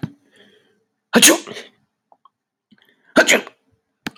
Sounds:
Sneeze